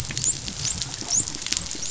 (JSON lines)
{"label": "biophony, dolphin", "recorder": "SoundTrap 500"}